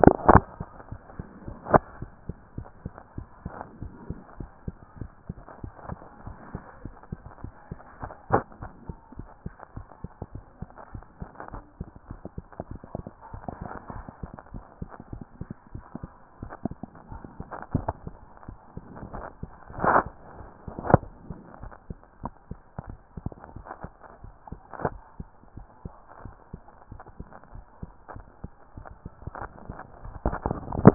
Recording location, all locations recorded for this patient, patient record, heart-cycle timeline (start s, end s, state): mitral valve (MV)
aortic valve (AV)+pulmonary valve (PV)+tricuspid valve (TV)+mitral valve (MV)
#Age: Child
#Sex: Female
#Height: 135.0 cm
#Weight: 34.3 kg
#Pregnancy status: False
#Murmur: Absent
#Murmur locations: nan
#Most audible location: nan
#Systolic murmur timing: nan
#Systolic murmur shape: nan
#Systolic murmur grading: nan
#Systolic murmur pitch: nan
#Systolic murmur quality: nan
#Diastolic murmur timing: nan
#Diastolic murmur shape: nan
#Diastolic murmur grading: nan
#Diastolic murmur pitch: nan
#Diastolic murmur quality: nan
#Outcome: Abnormal
#Campaign: 2014 screening campaign
0.00	2.88	unannotated
2.88	2.90	S2
2.90	3.16	diastole
3.16	3.28	S1
3.28	3.44	systole
3.44	3.52	S2
3.52	3.80	diastole
3.80	3.92	S1
3.92	4.08	systole
4.08	4.18	S2
4.18	4.38	diastole
4.38	4.50	S1
4.50	4.66	systole
4.66	4.76	S2
4.76	4.98	diastole
4.98	5.10	S1
5.10	5.28	systole
5.28	5.36	S2
5.36	5.62	diastole
5.62	5.74	S1
5.74	5.88	systole
5.88	5.98	S2
5.98	6.24	diastole
6.24	6.36	S1
6.36	6.52	systole
6.52	6.62	S2
6.62	6.84	diastole
6.84	6.96	S1
6.96	7.10	systole
7.10	7.20	S2
7.20	7.42	diastole
7.42	7.54	S1
7.54	7.70	systole
7.70	30.94	unannotated